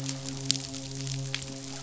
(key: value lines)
label: biophony, midshipman
recorder: SoundTrap 500